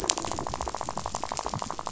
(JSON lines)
{"label": "biophony, rattle", "recorder": "SoundTrap 500"}